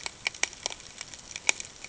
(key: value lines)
label: ambient
recorder: HydroMoth